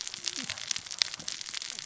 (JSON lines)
{"label": "biophony, cascading saw", "recorder": "SoundTrap 600 or HydroMoth"}